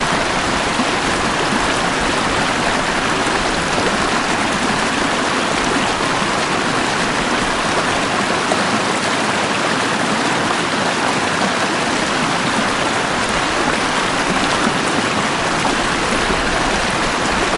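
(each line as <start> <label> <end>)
0.0 Water streaming loudly. 17.6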